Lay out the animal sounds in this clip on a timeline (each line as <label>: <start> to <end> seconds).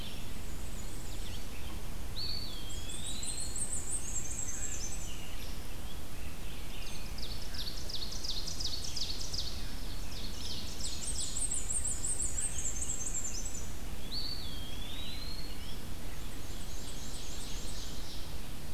Black-and-white Warbler (Mniotilta varia): 0.0 to 1.5 seconds
Red-eyed Vireo (Vireo olivaceus): 0.0 to 17.8 seconds
Eastern Wood-Pewee (Contopus virens): 2.0 to 3.6 seconds
Black-and-white Warbler (Mniotilta varia): 2.5 to 5.2 seconds
Rose-breasted Grosbeak (Pheucticus ludovicianus): 4.0 to 7.3 seconds
Ovenbird (Seiurus aurocapilla): 6.9 to 11.6 seconds
Black-and-white Warbler (Mniotilta varia): 10.7 to 13.9 seconds
Eastern Wood-Pewee (Contopus virens): 13.9 to 15.9 seconds
Ovenbird (Seiurus aurocapilla): 16.0 to 18.5 seconds
Black-and-white Warbler (Mniotilta varia): 16.3 to 18.0 seconds